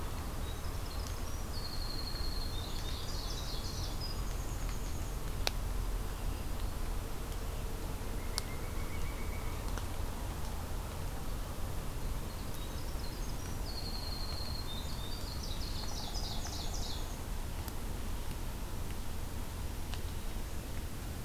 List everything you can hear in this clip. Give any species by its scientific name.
Troglodytes hiemalis, Seiurus aurocapilla, Setophaga virens, Dryocopus pileatus